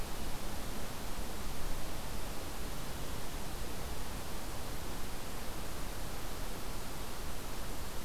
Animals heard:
forest ambience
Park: Acadia National Park